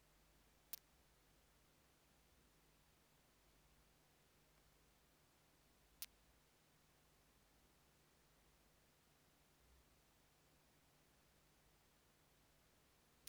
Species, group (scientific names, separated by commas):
Leptophyes punctatissima, Orthoptera